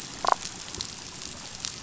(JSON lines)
{"label": "biophony, damselfish", "recorder": "SoundTrap 500"}